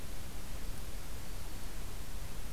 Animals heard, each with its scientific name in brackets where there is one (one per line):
Black-throated Green Warbler (Setophaga virens)